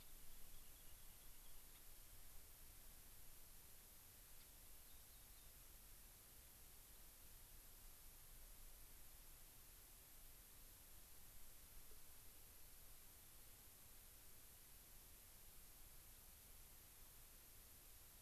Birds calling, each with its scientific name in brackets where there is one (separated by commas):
Rock Wren (Salpinctes obsoletus), Gray-crowned Rosy-Finch (Leucosticte tephrocotis)